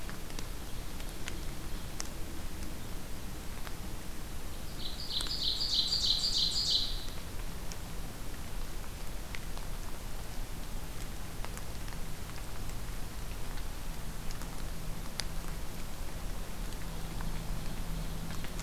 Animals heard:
Ovenbird (Seiurus aurocapilla)

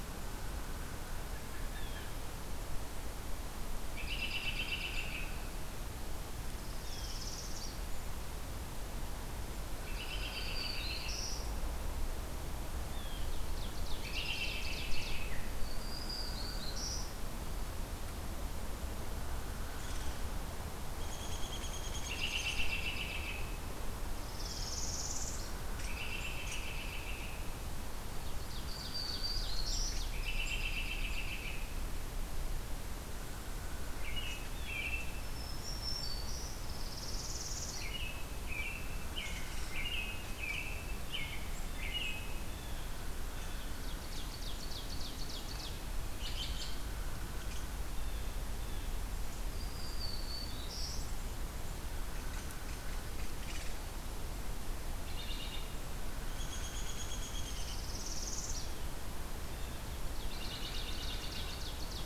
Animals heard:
Northern Parula (Setophaga americana)
Black-throated Green Warbler (Setophaga virens)
Hairy Woodpecker (Dryobates villosus)
Black-capped Chickadee (Poecile atricapillus)
Downy Woodpecker (Dryobates pubescens)
Ovenbird (Seiurus aurocapilla)
Blue Jay (Cyanocitta cristata)
American Robin (Turdus migratorius)

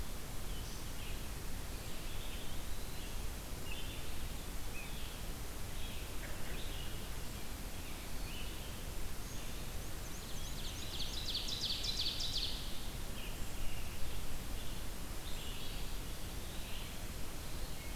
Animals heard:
Red-eyed Vireo (Vireo olivaceus)
Black-and-white Warbler (Mniotilta varia)
Ovenbird (Seiurus aurocapilla)
Eastern Wood-Pewee (Contopus virens)

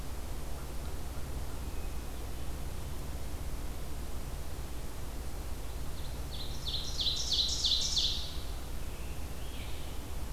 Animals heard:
Scarlet Tanager (Piranga olivacea)
Ovenbird (Seiurus aurocapilla)

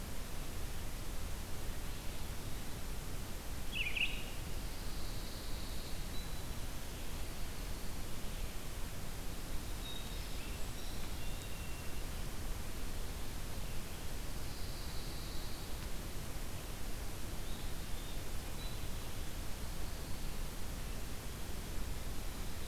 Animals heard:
Pine Warbler (Setophaga pinus)
Brown Creeper (Certhia americana)
Eastern Wood-Pewee (Contopus virens)
Red-eyed Vireo (Vireo olivaceus)

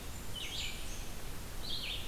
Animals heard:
Blackburnian Warbler (Setophaga fusca)
Red-eyed Vireo (Vireo olivaceus)

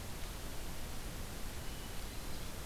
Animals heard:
Hermit Thrush (Catharus guttatus)

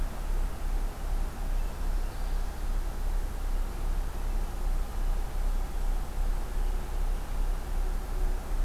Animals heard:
Black-throated Green Warbler (Setophaga virens)

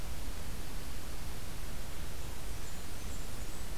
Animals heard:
Blackburnian Warbler (Setophaga fusca)

